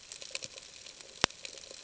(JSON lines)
{"label": "ambient", "recorder": "HydroMoth"}